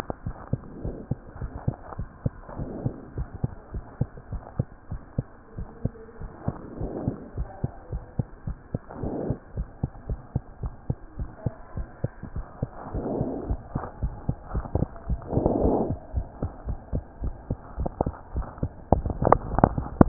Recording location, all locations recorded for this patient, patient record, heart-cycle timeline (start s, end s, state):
mitral valve (MV)
aortic valve (AV)+pulmonary valve (PV)+tricuspid valve (TV)+mitral valve (MV)
#Age: Child
#Sex: Female
#Height: 98.0 cm
#Weight: 16.6 kg
#Pregnancy status: False
#Murmur: Absent
#Murmur locations: nan
#Most audible location: nan
#Systolic murmur timing: nan
#Systolic murmur shape: nan
#Systolic murmur grading: nan
#Systolic murmur pitch: nan
#Systolic murmur quality: nan
#Diastolic murmur timing: nan
#Diastolic murmur shape: nan
#Diastolic murmur grading: nan
#Diastolic murmur pitch: nan
#Diastolic murmur quality: nan
#Outcome: Normal
#Campaign: 2015 screening campaign
0.00	0.23	unannotated
0.23	0.36	S1
0.36	0.50	systole
0.50	0.60	S2
0.60	0.80	diastole
0.80	0.94	S1
0.94	1.10	systole
1.10	1.18	S2
1.18	1.40	diastole
1.40	1.52	S1
1.52	1.64	systole
1.64	1.78	S2
1.78	1.96	diastole
1.96	2.08	S1
2.08	2.22	systole
2.22	2.36	S2
2.36	2.56	diastole
2.56	2.68	S1
2.68	2.84	systole
2.84	2.96	S2
2.96	3.16	diastole
3.16	3.28	S1
3.28	3.42	systole
3.42	3.54	S2
3.54	3.74	diastole
3.74	3.84	S1
3.84	3.98	systole
3.98	4.08	S2
4.08	4.30	diastole
4.30	4.42	S1
4.42	4.58	systole
4.58	4.68	S2
4.68	4.90	diastole
4.90	5.00	S1
5.00	5.16	systole
5.16	5.32	S2
5.32	5.56	diastole
5.56	5.68	S1
5.68	5.84	systole
5.84	5.96	S2
5.96	6.20	diastole
6.20	6.30	S1
6.30	6.44	systole
6.44	6.58	S2
6.58	6.76	diastole
6.76	6.90	S1
6.90	7.04	systole
7.04	7.18	S2
7.18	7.36	diastole
7.36	7.48	S1
7.48	7.60	systole
7.60	7.74	S2
7.74	7.92	diastole
7.92	8.04	S1
8.04	8.18	systole
8.18	8.26	S2
8.26	8.46	diastole
8.46	8.56	S1
8.56	8.70	systole
8.70	8.80	S2
8.80	8.98	diastole
8.98	9.12	S1
9.12	9.24	systole
9.24	9.38	S2
9.38	9.56	diastole
9.56	9.68	S1
9.68	9.80	systole
9.80	9.90	S2
9.90	10.08	diastole
10.08	10.20	S1
10.20	10.34	systole
10.34	10.44	S2
10.44	10.62	diastole
10.62	10.72	S1
10.72	10.86	systole
10.86	10.98	S2
10.98	11.18	diastole
11.18	11.30	S1
11.30	11.42	systole
11.42	11.56	S2
11.56	11.76	diastole
11.76	11.86	S1
11.86	12.00	systole
12.00	12.14	S2
12.14	12.34	diastole
12.34	12.46	S1
12.46	12.58	systole
12.58	12.72	S2
12.72	12.92	diastole
12.92	13.04	S1
13.04	13.16	systole
13.16	13.28	S2
13.28	13.44	diastole
13.44	13.62	S1
13.62	13.74	systole
13.74	13.84	S2
13.84	14.00	diastole
14.00	14.14	S1
14.14	14.26	systole
14.26	14.36	S2
14.36	14.52	diastole
14.52	14.66	S1
14.66	14.76	systole
14.76	14.90	S2
14.90	15.08	diastole
15.08	15.20	S1
15.20	20.08	unannotated